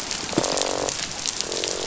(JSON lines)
{"label": "biophony, croak", "recorder": "SoundTrap 500"}